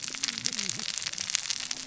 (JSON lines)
{"label": "biophony, cascading saw", "recorder": "SoundTrap 600 or HydroMoth"}